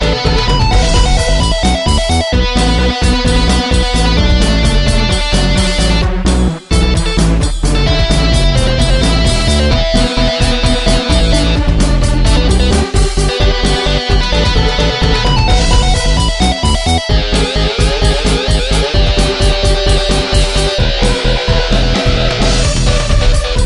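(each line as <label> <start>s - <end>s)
An electric guitar plays loudly and rhythmically. 0.0s - 23.7s
Drums playing rhythmically. 0.0s - 23.7s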